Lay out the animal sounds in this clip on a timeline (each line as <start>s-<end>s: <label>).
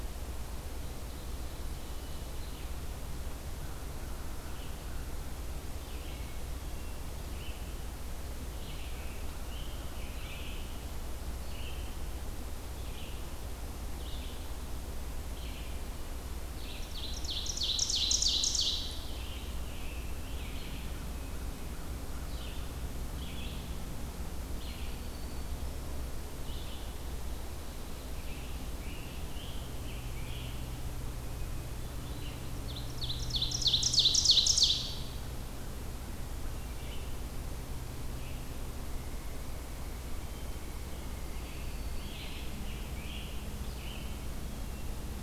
2.1s-26.9s: Red-eyed Vireo (Vireo olivaceus)
3.6s-5.1s: American Crow (Corvus brachyrhynchos)
6.5s-7.2s: Hermit Thrush (Catharus guttatus)
8.7s-10.8s: Scarlet Tanager (Piranga olivacea)
16.4s-19.1s: Ovenbird (Seiurus aurocapilla)
18.9s-20.9s: Scarlet Tanager (Piranga olivacea)
24.7s-25.9s: Black-throated Green Warbler (Setophaga virens)
28.1s-30.7s: Scarlet Tanager (Piranga olivacea)
31.2s-32.3s: Hermit Thrush (Catharus guttatus)
32.5s-35.3s: Ovenbird (Seiurus aurocapilla)
36.4s-37.2s: Hermit Thrush (Catharus guttatus)
38.7s-42.9s: Pileated Woodpecker (Dryocopus pileatus)
41.2s-42.6s: Black-throated Green Warbler (Setophaga virens)
41.8s-44.3s: Scarlet Tanager (Piranga olivacea)
44.3s-45.2s: Hermit Thrush (Catharus guttatus)